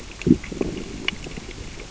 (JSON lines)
{"label": "biophony, growl", "recorder": "SoundTrap 600 or HydroMoth"}